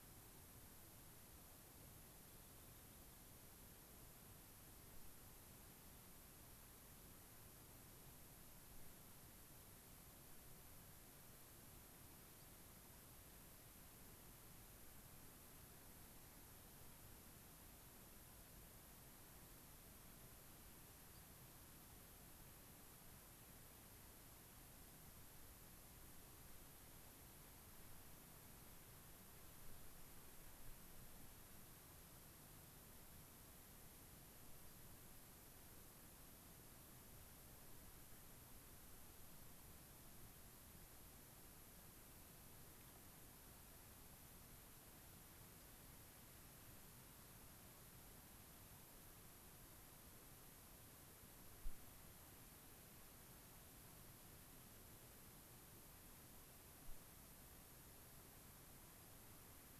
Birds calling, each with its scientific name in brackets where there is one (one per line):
unidentified bird